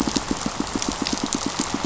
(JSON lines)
{"label": "biophony, pulse", "recorder": "SoundTrap 500"}